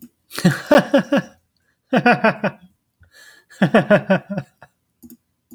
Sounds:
Laughter